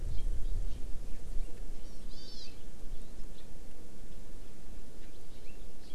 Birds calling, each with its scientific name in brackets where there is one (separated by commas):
Hawaii Amakihi (Chlorodrepanis virens)